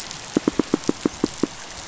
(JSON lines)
{"label": "biophony, pulse", "recorder": "SoundTrap 500"}